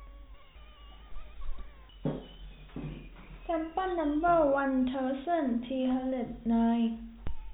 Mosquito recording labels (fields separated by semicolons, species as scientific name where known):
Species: no mosquito; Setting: cup